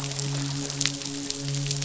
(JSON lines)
{"label": "biophony, midshipman", "recorder": "SoundTrap 500"}